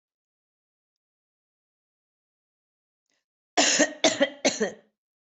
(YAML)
expert_labels:
- quality: ok
  cough_type: dry
  dyspnea: false
  wheezing: false
  stridor: false
  choking: false
  congestion: false
  nothing: true
  diagnosis: healthy cough
  severity: mild
- quality: good
  cough_type: dry
  dyspnea: false
  wheezing: false
  stridor: false
  choking: false
  congestion: false
  nothing: true
  diagnosis: COVID-19
  severity: mild
- quality: good
  cough_type: dry
  dyspnea: false
  wheezing: false
  stridor: false
  choking: false
  congestion: false
  nothing: true
  diagnosis: upper respiratory tract infection
  severity: mild
- quality: good
  cough_type: dry
  dyspnea: false
  wheezing: false
  stridor: false
  choking: false
  congestion: false
  nothing: true
  diagnosis: healthy cough
  severity: pseudocough/healthy cough
age: 44
gender: female
respiratory_condition: false
fever_muscle_pain: false
status: healthy